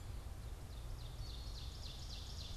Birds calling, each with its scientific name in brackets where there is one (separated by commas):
Black-capped Chickadee (Poecile atricapillus), Ovenbird (Seiurus aurocapilla)